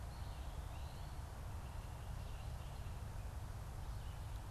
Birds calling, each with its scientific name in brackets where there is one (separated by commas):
Great Crested Flycatcher (Myiarchus crinitus), Eastern Wood-Pewee (Contopus virens)